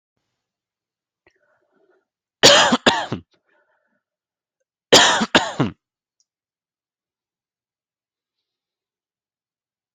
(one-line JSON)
{"expert_labels": [{"quality": "good", "cough_type": "dry", "dyspnea": false, "wheezing": false, "stridor": false, "choking": false, "congestion": false, "nothing": true, "diagnosis": "COVID-19", "severity": "mild"}], "age": 33, "gender": "male", "respiratory_condition": false, "fever_muscle_pain": false, "status": "symptomatic"}